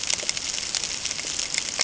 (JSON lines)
{"label": "ambient", "recorder": "HydroMoth"}